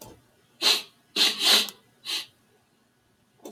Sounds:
Sniff